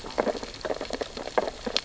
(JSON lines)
{"label": "biophony, sea urchins (Echinidae)", "recorder": "SoundTrap 600 or HydroMoth"}